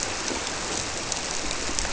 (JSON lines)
{"label": "biophony", "recorder": "SoundTrap 300"}